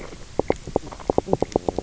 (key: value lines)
label: biophony, knock croak
recorder: SoundTrap 300